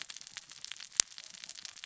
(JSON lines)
{"label": "biophony, cascading saw", "recorder": "SoundTrap 600 or HydroMoth"}